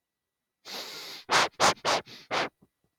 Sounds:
Sniff